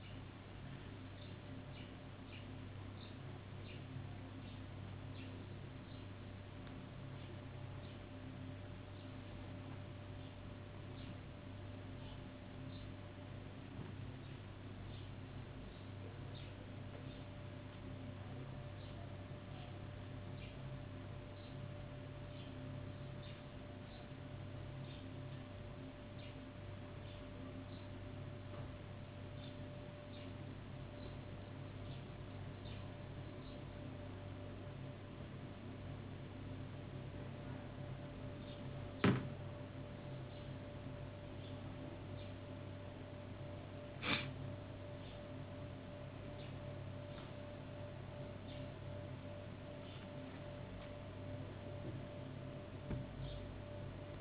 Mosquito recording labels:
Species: no mosquito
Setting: insect culture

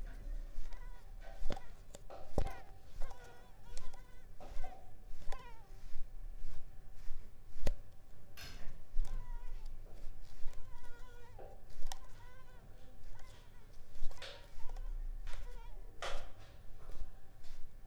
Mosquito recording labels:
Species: Mansonia africanus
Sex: female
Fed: unfed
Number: one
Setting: cup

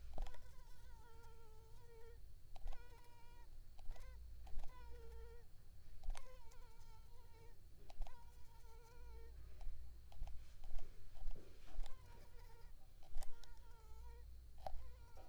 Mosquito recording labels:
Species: Anopheles arabiensis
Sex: female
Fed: unfed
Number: one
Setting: cup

